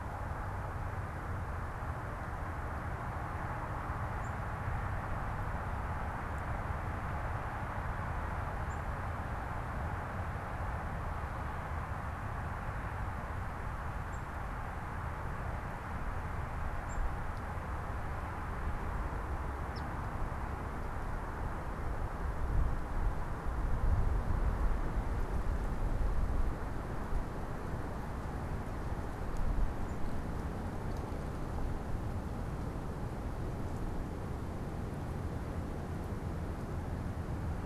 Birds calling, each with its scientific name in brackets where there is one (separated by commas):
unidentified bird, Eastern Phoebe (Sayornis phoebe)